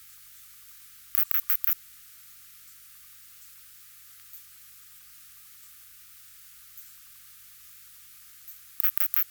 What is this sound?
Poecilimon propinquus, an orthopteran